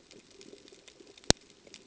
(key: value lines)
label: ambient
recorder: HydroMoth